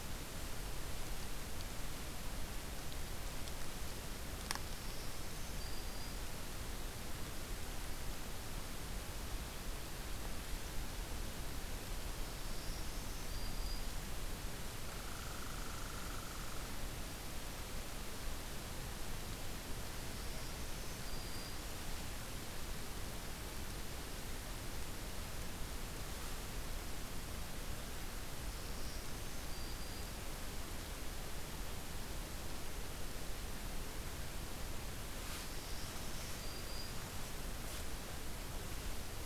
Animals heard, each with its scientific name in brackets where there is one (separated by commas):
Red Squirrel (Tamiasciurus hudsonicus), Black-throated Green Warbler (Setophaga virens)